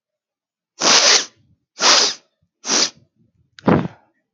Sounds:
Sniff